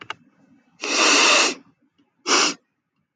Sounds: Sniff